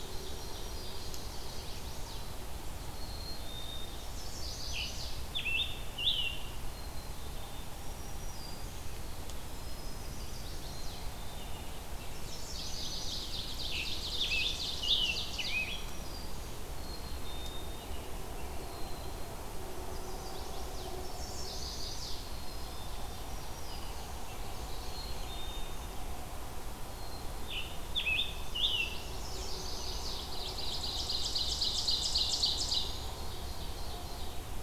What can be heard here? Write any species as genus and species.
Seiurus aurocapilla, Setophaga virens, Setophaga pensylvanica, Poecile atricapillus, Piranga olivacea, Contopus virens, Turdus migratorius, Geothlypis philadelphia